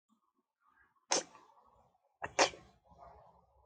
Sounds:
Sneeze